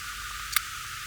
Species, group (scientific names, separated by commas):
Poecilimon tessellatus, Orthoptera